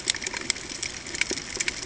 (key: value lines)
label: ambient
recorder: HydroMoth